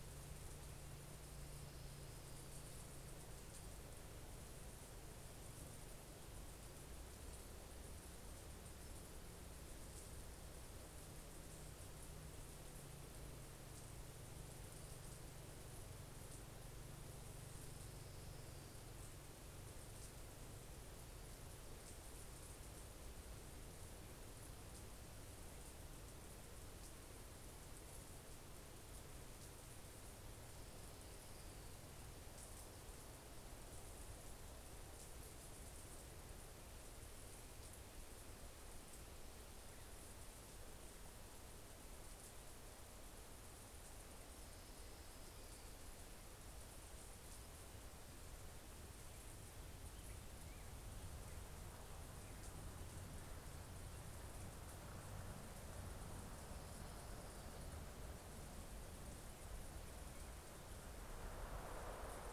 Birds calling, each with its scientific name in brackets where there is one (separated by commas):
Black-headed Grosbeak (Pheucticus melanocephalus), Pacific-slope Flycatcher (Empidonax difficilis), Orange-crowned Warbler (Leiothlypis celata)